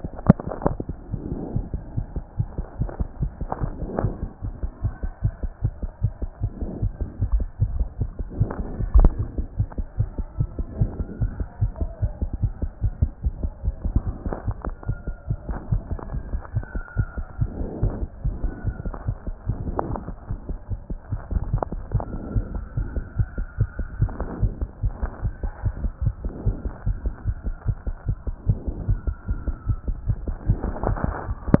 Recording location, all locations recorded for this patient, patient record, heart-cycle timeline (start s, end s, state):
aortic valve (AV)
aortic valve (AV)+pulmonary valve (PV)+tricuspid valve (TV)+mitral valve (MV)
#Age: Child
#Sex: Male
#Height: 124.0 cm
#Weight: 21.3 kg
#Pregnancy status: False
#Murmur: Absent
#Murmur locations: nan
#Most audible location: nan
#Systolic murmur timing: nan
#Systolic murmur shape: nan
#Systolic murmur grading: nan
#Systolic murmur pitch: nan
#Systolic murmur quality: nan
#Diastolic murmur timing: nan
#Diastolic murmur shape: nan
#Diastolic murmur grading: nan
#Diastolic murmur pitch: nan
#Diastolic murmur quality: nan
#Outcome: Abnormal
#Campaign: 2014 screening campaign
0.00	22.34	unannotated
22.34	22.44	S1
22.44	22.54	systole
22.54	22.62	S2
22.62	22.76	diastole
22.76	22.88	S1
22.88	22.96	systole
22.96	23.04	S2
23.04	23.18	diastole
23.18	23.28	S1
23.28	23.38	systole
23.38	23.46	S2
23.46	23.58	diastole
23.58	23.68	S1
23.68	23.78	systole
23.78	23.86	S2
23.86	24.00	diastole
24.00	24.10	S1
24.10	24.20	systole
24.20	24.28	S2
24.28	24.40	diastole
24.40	24.52	S1
24.52	24.60	systole
24.60	24.68	S2
24.68	24.82	diastole
24.82	24.94	S1
24.94	25.02	systole
25.02	25.10	S2
25.10	25.24	diastole
25.24	25.34	S1
25.34	25.42	systole
25.42	25.52	S2
25.52	25.64	diastole
25.64	25.74	S1
25.74	25.82	systole
25.82	25.90	S2
25.90	26.02	diastole
26.02	26.14	S1
26.14	26.24	systole
26.24	26.32	S2
26.32	26.46	diastole
26.46	26.56	S1
26.56	26.64	systole
26.64	26.72	S2
26.72	26.86	diastole
26.86	26.98	S1
26.98	27.04	systole
27.04	27.14	S2
27.14	27.26	diastole
27.26	27.36	S1
27.36	27.46	systole
27.46	27.54	S2
27.54	27.66	diastole
27.66	27.76	S1
27.76	27.86	systole
27.86	27.94	S2
27.94	28.08	diastole
28.08	28.16	S1
28.16	28.26	systole
28.26	28.34	S2
28.34	28.48	diastole
28.48	28.58	S1
28.58	28.66	systole
28.66	28.74	S2
28.74	28.88	diastole
28.88	28.98	S1
28.98	29.06	systole
29.06	29.16	S2
29.16	29.28	diastole
29.28	29.38	S1
29.38	29.46	systole
29.46	29.56	S2
29.56	29.68	diastole
29.68	29.78	S1
29.78	29.88	systole
29.88	29.96	S2
29.96	30.08	diastole
30.08	30.18	S1
30.18	30.28	systole
30.28	30.36	S2
30.36	30.48	diastole
30.48	31.60	unannotated